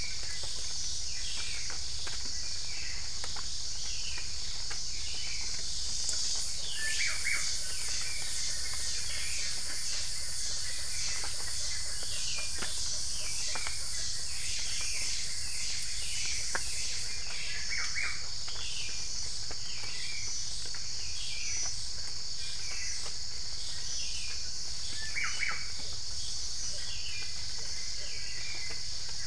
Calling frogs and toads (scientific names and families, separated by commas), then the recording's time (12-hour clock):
Boana lundii (Hylidae)
5:45am